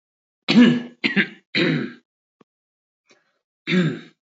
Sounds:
Throat clearing